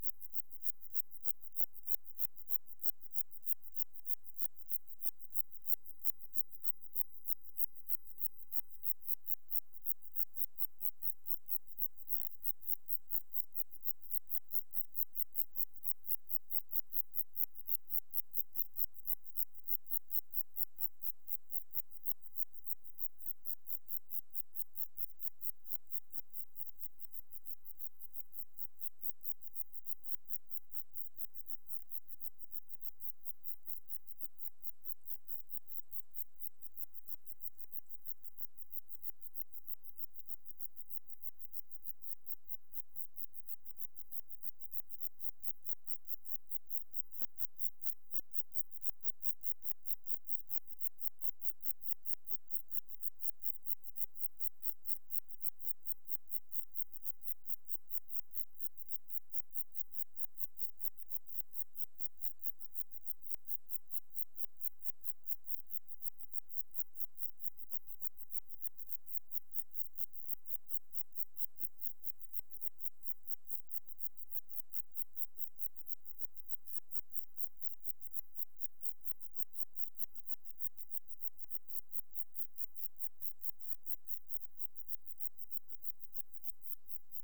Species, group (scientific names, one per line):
Zeuneriana abbreviata
Orthoptera